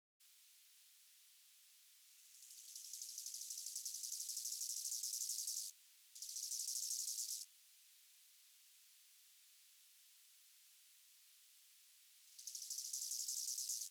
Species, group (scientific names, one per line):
Chorthippus biguttulus
Orthoptera